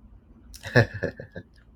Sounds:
Laughter